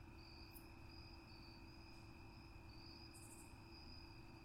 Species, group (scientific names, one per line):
Hapithus saltator
Orthoptera